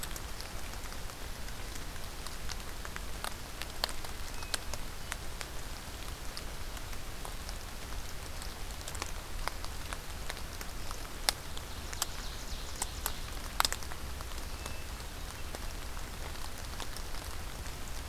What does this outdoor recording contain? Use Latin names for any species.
Catharus guttatus, Seiurus aurocapilla